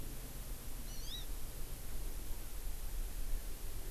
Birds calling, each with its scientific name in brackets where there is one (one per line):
Hawaii Amakihi (Chlorodrepanis virens)